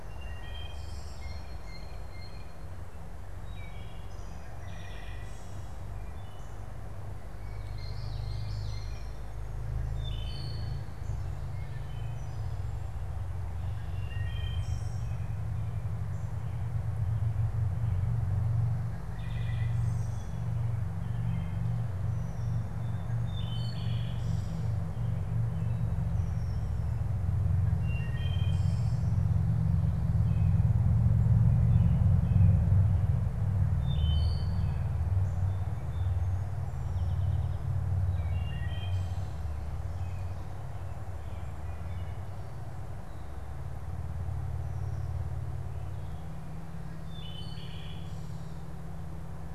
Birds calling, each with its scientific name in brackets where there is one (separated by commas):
Wood Thrush (Hylocichla mustelina), American Goldfinch (Spinus tristis), Common Yellowthroat (Geothlypis trichas), Blue Jay (Cyanocitta cristata)